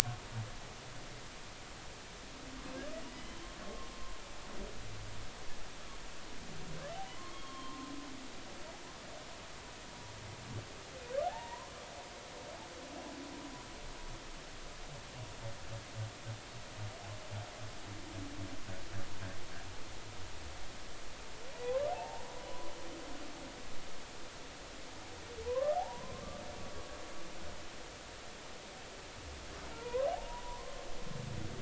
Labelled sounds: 3.1	3.9	humpback whale, 1.0 to 3.2 kHz
7.2	7.9	humpback whale, 0.90 to 1.2 kHz
11.2	11.7	humpback whale, 0.80 to 2.0 kHz
21.5	22.2	humpback whale, 0.80 to 1.1 kHz
25.4	26.2	humpback whale, 0.80 to 1.3 kHz
29.7	30.9	humpback whale, 0.80 to 1.2 kHz

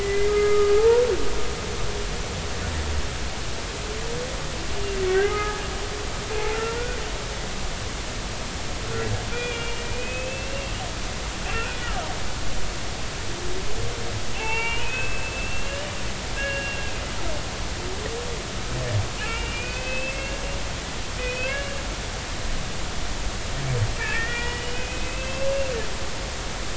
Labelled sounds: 0.0	1.0	humpback whale, 0.80 to 2.1 kHz
5.1	5.7	humpback whale, 0.80 to 2.1 kHz
9.3	10.8	humpback whale, 2.3 to 3.5 kHz
11.5	11.8	humpback whale, 1.3 to 1.6 kHz
14.3	16.0	humpback whale, 0.80 to 3.0 kHz
16.4	16.9	humpback whale, 1.6 to 2.9 kHz
19.2	20.4	humpback whale, 2.2 to 2.9 kHz
21.2	21.8	humpback whale, 1.5 to 3.4 kHz
24.0	25.5	humpback whale, 1.3 to 3.1 kHz

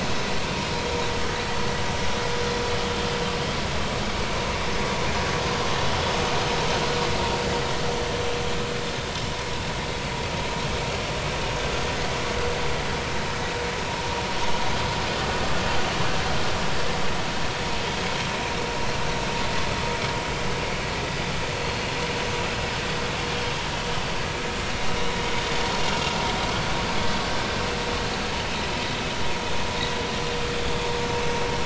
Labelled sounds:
30.6	30.9	vessel noise, 3.3 to 3.5 kHz

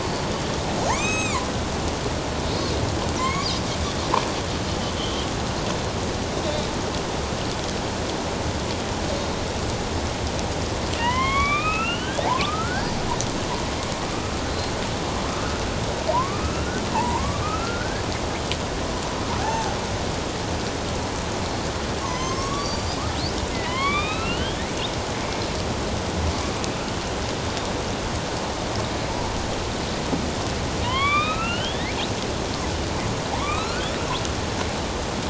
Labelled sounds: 0.0	1.5	killer whale, northern resident, A clan, AB subclan, 0.78 to 7.8 kHz
3.2	3.6	killer whale, northern resident, A clan, AB subclan, 0.97 to 5.1 kHz
5.0	5.3	killer whale, northern resident, A clan, AB subclan, 2.9 to 3.4 kHz
11.0	13.0	killer whale, northern resident, A clan, AB subclan, 0.78 to 4.5 kHz
15.3	15.6	killer whale, northern resident, A clan, AB subclan, 1.2 to 1.5 kHz
16.1	18.0	killer whale, northern resident, A clan, AB subclan, 0.81 to 2.8 kHz
19.4	19.8	killer whale, northern resident, A clan, AB subclan, 0.78 to 0.94 kHz
22.0	24.6	killer whale, northern resident, A clan, AB subclan, 0.91 to 6.7 kHz
30.8	32.0	killer whale, northern resident, A clan, AB subclan, 0.91 to 4.0 kHz
33.3	33.9	killer whale, northern resident, A clan, AB subclan, 0.78 to 4.4 kHz

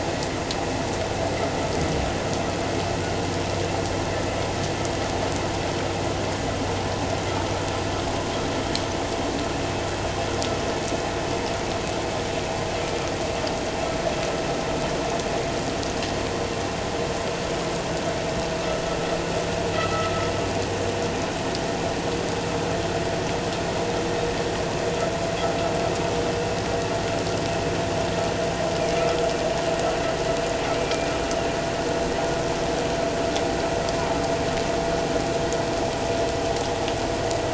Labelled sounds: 19.7	20.1	humpback whale, 1.9 to 2.0 kHz
30.6	31.1	humpback whale, 2.1 to 2.5 kHz

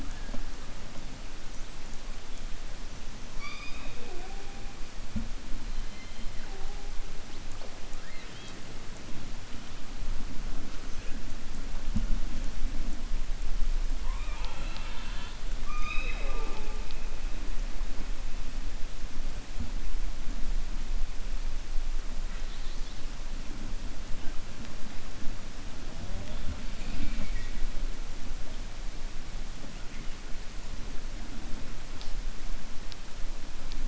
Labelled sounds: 13.9	15.4	killer whale, 0.54 to 4.9 kHz

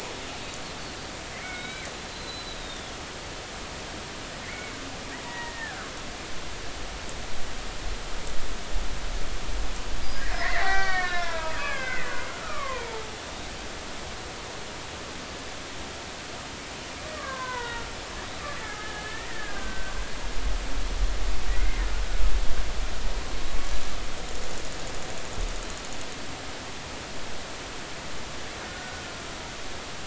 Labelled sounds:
1.3	3.0	killer whale, Bigg's (transient), 1.4 to 4.2 kHz
4.4	4.7	killer whale, Bigg's (transient), 1.9 to 2.3 kHz
5.2	5.9	killer whale, Bigg's (transient), 0.90 to 2.0 kHz
10.0	13.0	killer whale, Bigg's (transient), 0.80 to 5.9 kHz
17.1	17.9	killer whale, Bigg's (transient), 0.90 to 2.1 kHz
18.6	19.9	killer whale, Bigg's (transient), 1.2 to 2.0 kHz
21.6	21.8	killer whale, Bigg's (transient), 2.0 to 2.2 kHz
28.7	29.0	killer whale, Bigg's (transient), 1.4 to 1.5 kHz

